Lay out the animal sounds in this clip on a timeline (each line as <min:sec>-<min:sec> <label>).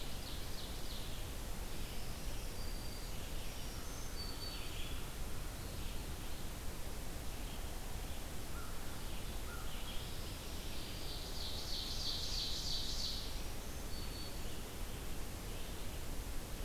0:00.0-0:01.4 Ovenbird (Seiurus aurocapilla)
0:01.6-0:16.6 Red-eyed Vireo (Vireo olivaceus)
0:01.7-0:05.0 Black-throated Green Warbler (Setophaga virens)
0:08.4-0:09.8 American Crow (Corvus brachyrhynchos)
0:09.8-0:11.5 Black-throated Green Warbler (Setophaga virens)
0:10.7-0:13.6 Ovenbird (Seiurus aurocapilla)
0:13.1-0:14.6 Black-throated Green Warbler (Setophaga virens)